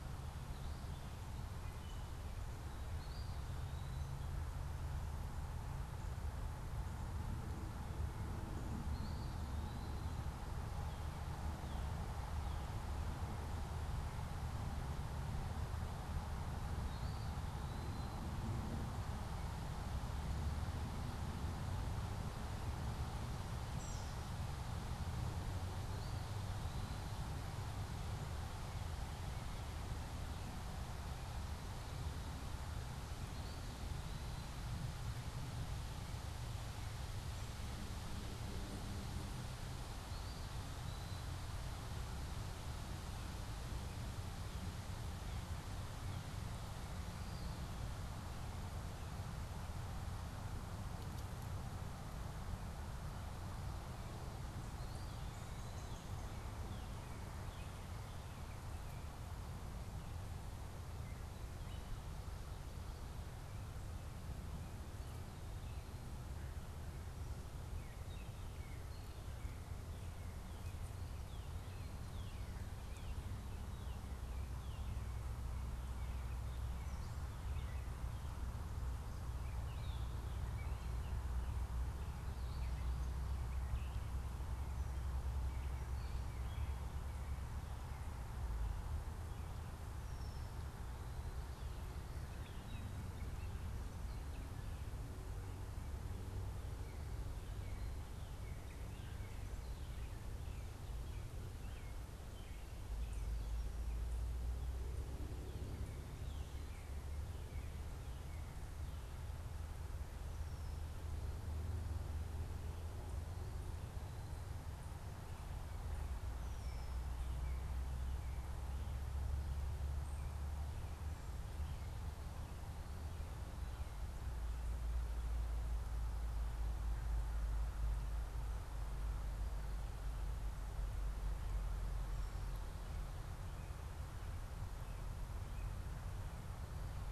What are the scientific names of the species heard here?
Vireo gilvus, Hylocichla mustelina, Contopus virens, Cardinalis cardinalis, Turdus migratorius, Dumetella carolinensis, Molothrus ater